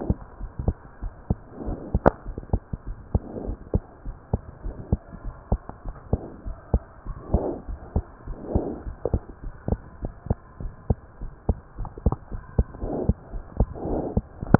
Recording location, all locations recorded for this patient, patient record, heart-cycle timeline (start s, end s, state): pulmonary valve (PV)
aortic valve (AV)+pulmonary valve (PV)+tricuspid valve (TV)+mitral valve (MV)
#Age: Child
#Sex: Female
#Height: 99.0 cm
#Weight: 17.2 kg
#Pregnancy status: False
#Murmur: Absent
#Murmur locations: nan
#Most audible location: nan
#Systolic murmur timing: nan
#Systolic murmur shape: nan
#Systolic murmur grading: nan
#Systolic murmur pitch: nan
#Systolic murmur quality: nan
#Diastolic murmur timing: nan
#Diastolic murmur shape: nan
#Diastolic murmur grading: nan
#Diastolic murmur pitch: nan
#Diastolic murmur quality: nan
#Outcome: Abnormal
#Campaign: 2015 screening campaign
0.00	4.03	unannotated
4.03	4.16	S1
4.16	4.30	systole
4.30	4.40	S2
4.40	4.64	diastole
4.64	4.76	S1
4.76	4.88	systole
4.88	5.02	S2
5.02	5.22	diastole
5.22	5.34	S1
5.34	5.48	systole
5.48	5.62	S2
5.62	5.86	diastole
5.86	5.96	S1
5.96	6.09	systole
6.09	6.24	S2
6.24	6.42	diastole
6.42	6.56	S1
6.56	6.70	systole
6.70	6.84	S2
6.84	7.03	diastole
7.03	7.18	S1
7.18	7.30	systole
7.30	7.46	S2
7.46	7.65	diastole
7.65	7.80	S1
7.80	7.92	systole
7.92	8.04	S2
8.04	8.24	diastole
8.24	8.38	S1
8.38	8.50	systole
8.50	8.64	S2
8.64	8.82	diastole
8.82	8.96	S1
8.96	9.10	systole
9.10	9.24	S2
9.24	9.40	diastole
9.40	9.54	S1
9.54	9.68	systole
9.68	9.82	S2
9.82	9.99	diastole
9.99	10.12	S1
10.12	10.26	systole
10.26	10.40	S2
10.40	10.58	diastole
10.58	10.72	S1
10.72	10.86	systole
10.86	11.00	S2
11.00	11.18	diastole
11.18	11.32	S1
11.32	11.46	systole
11.46	11.60	S2
11.60	11.75	diastole
11.75	11.90	S1
11.90	14.59	unannotated